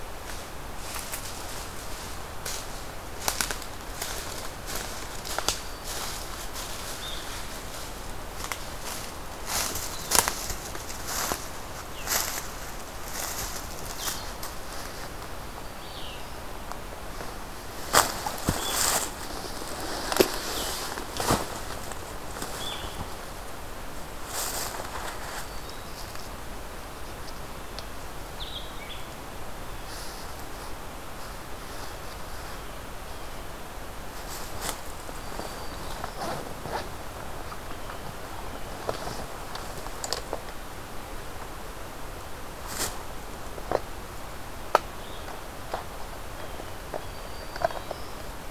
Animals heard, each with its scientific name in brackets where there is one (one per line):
Black-throated Green Warbler (Setophaga virens)
Blue Jay (Cyanocitta cristata)
Blue-headed Vireo (Vireo solitarius)